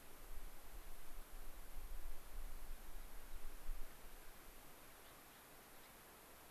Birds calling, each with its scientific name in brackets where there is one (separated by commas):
Gray-crowned Rosy-Finch (Leucosticte tephrocotis)